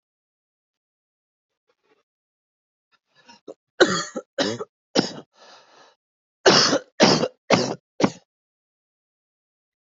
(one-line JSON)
{"expert_labels": [{"quality": "good", "cough_type": "wet", "dyspnea": false, "wheezing": false, "stridor": false, "choking": false, "congestion": false, "nothing": true, "diagnosis": "COVID-19", "severity": "severe"}], "age": 40, "gender": "male", "respiratory_condition": false, "fever_muscle_pain": true, "status": "symptomatic"}